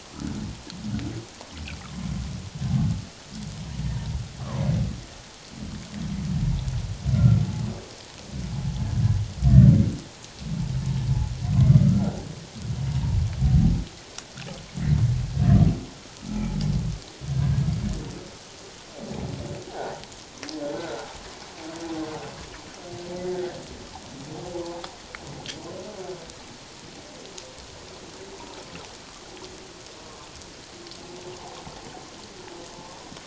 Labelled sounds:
1.8	2.1	humpback whale, 0.97 to 1.4 kHz
4.4	4.7	humpback whale, 0.94 to 1.4 kHz
7.1	7.4	humpback whale, 1.3 to 1.4 kHz
11.8	12.2	humpback whale, 1.2 to 1.6 kHz
19.7	19.9	humpback whale, 0.78 to 0.97 kHz
20.7	21.1	humpback whale, 1.3 to 1.6 kHz

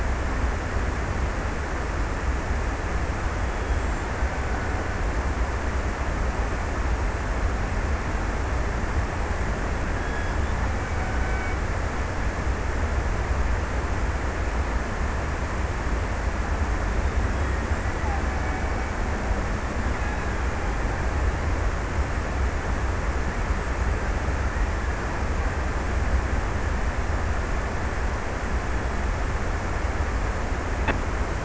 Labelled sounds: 3.3	5.6	killer whale, Bigg's (transient), 0.58 to 2.5 kHz
10.6	11.9	killer whale, Bigg's (transient), 1.3 to 2.5 kHz
17.3	21.1	killer whale, Bigg's (transient), 0.60 to 2.7 kHz

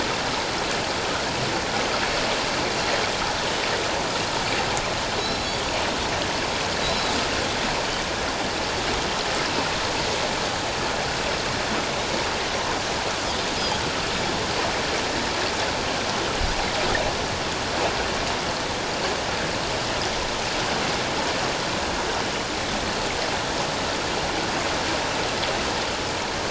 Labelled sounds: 5.2	5.6	Pacific white-sided dolphin, 3.8 to 5.5 kHz
6.8	7.1	Pacific white-sided dolphin, 3.8 to 4.1 kHz

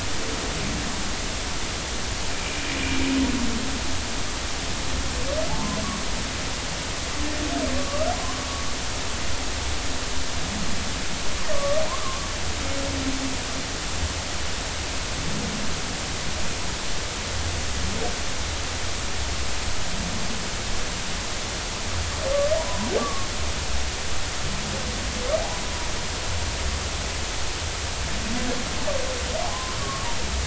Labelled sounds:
2.7	3.0	humpback whale, 2.3 to 2.5 kHz
7.8	8.1	humpback whale, 1.1 to 1.3 kHz
11.5	12.3	humpback whale, 0.99 to 1.2 kHz
23.0	23.3	humpback whale, 1.1 to 1.2 kHz
29.5	30.1	humpback whale, 0.96 to 1.2 kHz

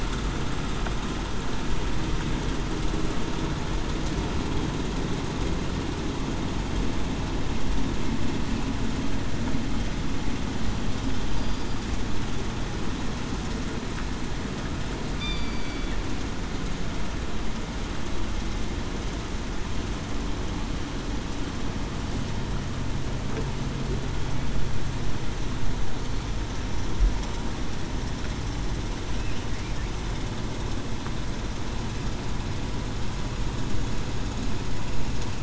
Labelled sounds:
11.3	11.8	killer whale, southern resident, 4.7 to 4.8 kHz
15.2	15.9	killer whale, southern resident, 2.3 to 4.8 kHz

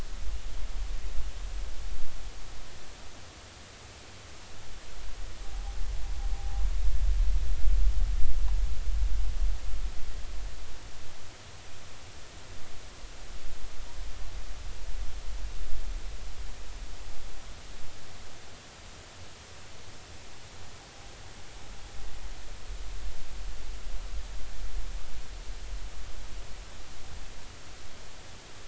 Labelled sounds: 6.3	6.6	noise likely from the mooring, 0.80 to 0.86 kHz

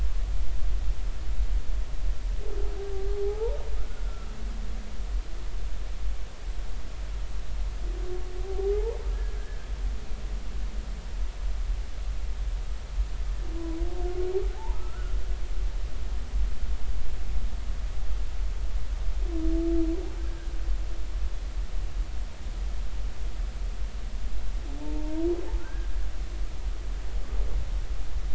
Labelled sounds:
3.1	4.3	humpback whale, 0.80 to 1.5 kHz
8.4	9.4	humpback whale, 0.80 to 1.8 kHz
14.6	15.2	humpback whale, 0.80 to 1.5 kHz
20.2	20.5	humpback whale, 1.5 to 1.7 kHz
24.8	25.9	humpback whale, 0.83 to 1.7 kHz

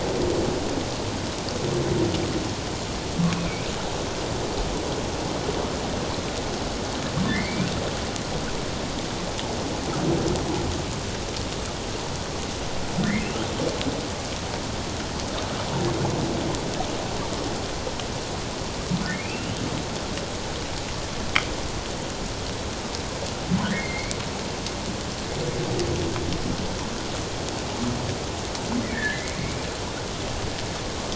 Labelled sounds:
3.3	3.7	humpback whale, 2.2 to 2.6 kHz
7.3	7.7	humpback whale, 1.7 to 2.5 kHz
13.0	13.3	humpback whale, 1.7 to 2.3 kHz
19.2	19.5	humpback whale, 2.3 to 2.8 kHz
23.6	24.1	humpback whale, 1.4 to 4.3 kHz
28.9	29.4	humpback whale, 1.6 to 2.4 kHz

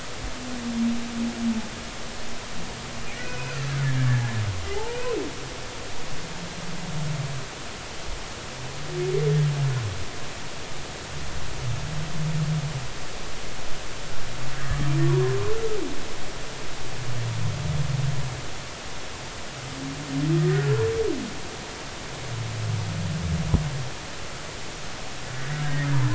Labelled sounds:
3.2	3.7	humpback whale, 1.3 to 2.6 kHz
4.7	5.0	humpback whale, 0.80 to 0.99 kHz
20.4	20.8	humpback whale, 1.3 to 2.0 kHz
25.6	25.9	humpback whale, 1.6 to 1.9 kHz

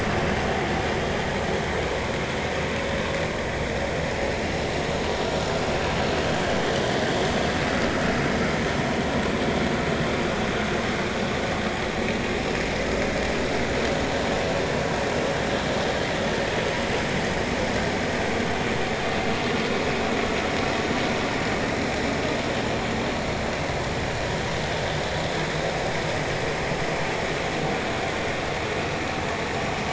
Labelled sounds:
5.2	5.5	vessel noise, 1.2 to 1.4 kHz

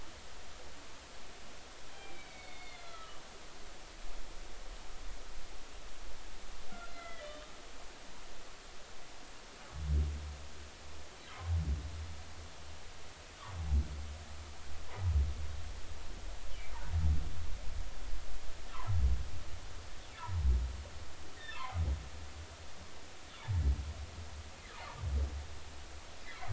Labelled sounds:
1.9	3.2	humpback whale, 1.2 to 4.6 kHz
6.7	7.5	humpback whale, 1.3 to 3.7 kHz
21.4	21.6	humpback whale, 1.6 to 1.9 kHz
26.3	26.5	humpback whale, 1.6 to 2.3 kHz

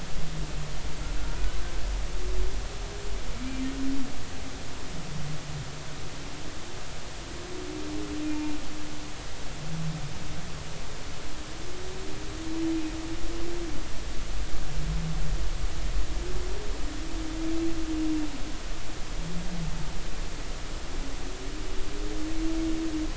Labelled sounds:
8.2	8.5	humpback whale, 2.3 to 2.5 kHz

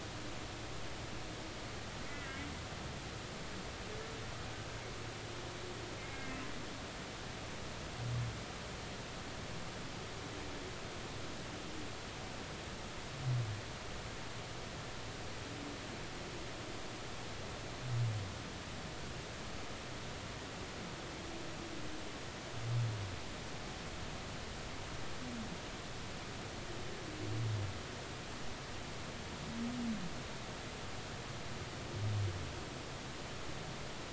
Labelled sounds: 2.1	2.5	humpback whale, 1.9 to 2.1 kHz
6.0	6.4	humpback whale, 2.0 to 2.2 kHz

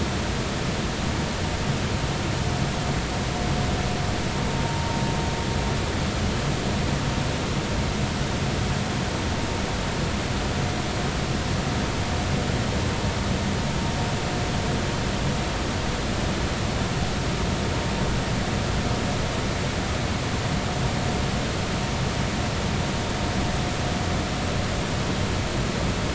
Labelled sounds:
4.6	4.9	vessel noise, 0.86 to 0.99 kHz

